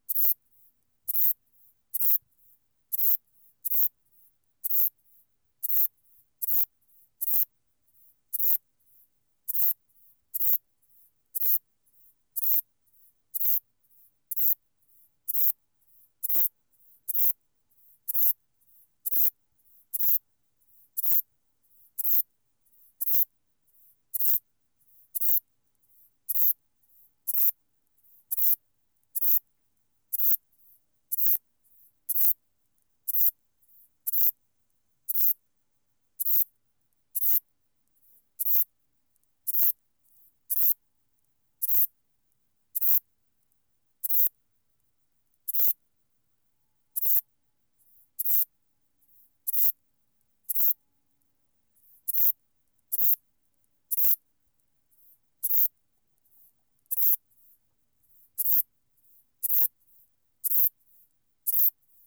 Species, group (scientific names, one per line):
Ephippiger diurnus
Orthoptera